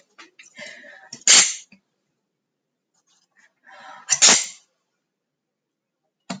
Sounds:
Sneeze